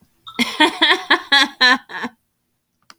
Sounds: Laughter